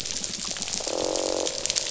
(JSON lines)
{"label": "biophony, croak", "recorder": "SoundTrap 500"}
{"label": "biophony", "recorder": "SoundTrap 500"}